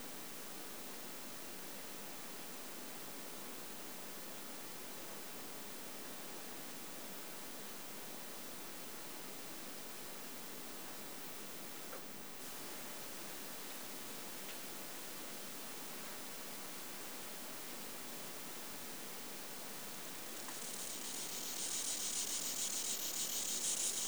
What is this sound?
Stenobothrus fischeri, an orthopteran